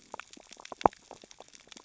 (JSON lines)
{"label": "biophony, sea urchins (Echinidae)", "recorder": "SoundTrap 600 or HydroMoth"}